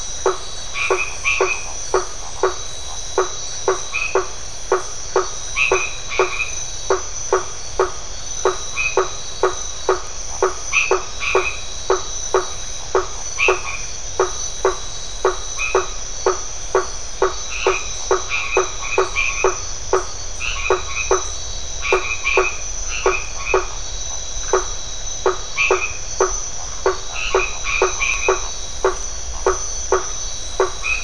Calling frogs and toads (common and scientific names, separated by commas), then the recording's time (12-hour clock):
blacksmith tree frog (Boana faber), white-edged tree frog (Boana albomarginata), Phyllomedusa distincta
8:30pm